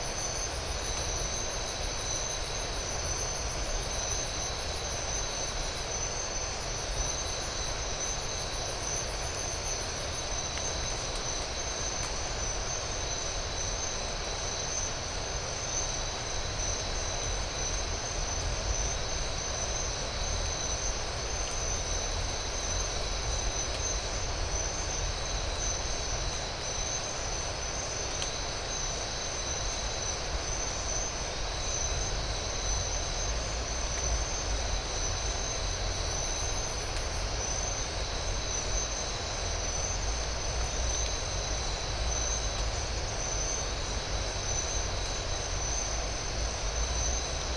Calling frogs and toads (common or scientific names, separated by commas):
none